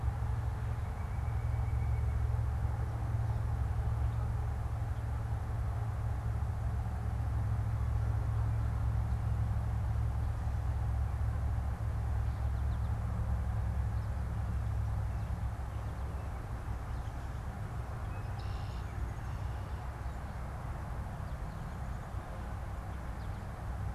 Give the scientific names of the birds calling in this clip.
Sitta carolinensis, Spinus tristis, Agelaius phoeniceus, Dryobates pubescens